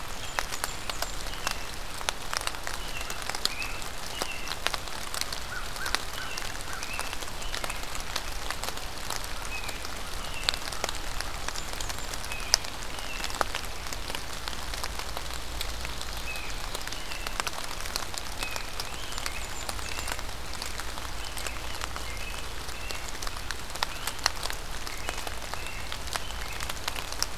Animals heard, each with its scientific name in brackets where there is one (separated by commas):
American Crow (Corvus brachyrhynchos), Great Crested Flycatcher (Myiarchus crinitus), Blackburnian Warbler (Setophaga fusca), American Robin (Turdus migratorius)